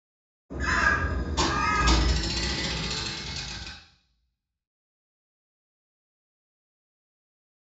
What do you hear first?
bird